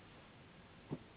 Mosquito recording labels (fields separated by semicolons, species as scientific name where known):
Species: Anopheles gambiae s.s.; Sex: female; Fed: unfed; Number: one; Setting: insect culture